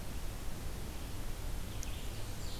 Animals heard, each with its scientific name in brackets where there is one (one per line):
Blackburnian Warbler (Setophaga fusca)